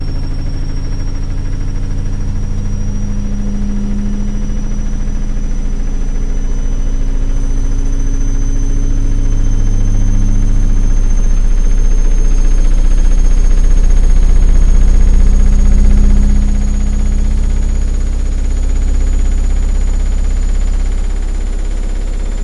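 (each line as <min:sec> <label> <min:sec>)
0:00.0 A washing machine spins, gradually increasing in speed. 0:22.4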